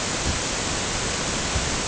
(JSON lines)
{"label": "ambient", "recorder": "HydroMoth"}